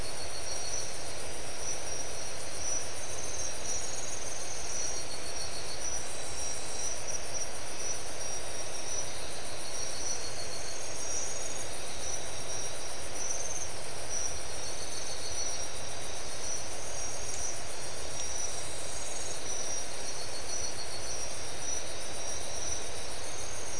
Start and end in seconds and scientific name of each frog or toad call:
none